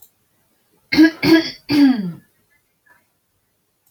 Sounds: Throat clearing